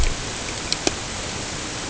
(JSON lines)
{"label": "ambient", "recorder": "HydroMoth"}